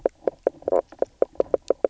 {"label": "biophony, knock croak", "recorder": "SoundTrap 300"}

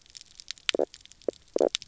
{"label": "biophony, knock croak", "recorder": "SoundTrap 300"}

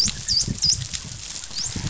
{"label": "biophony, dolphin", "recorder": "SoundTrap 500"}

